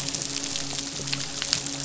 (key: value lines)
label: biophony, midshipman
recorder: SoundTrap 500